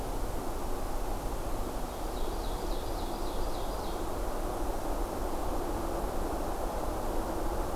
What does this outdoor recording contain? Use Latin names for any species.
Seiurus aurocapilla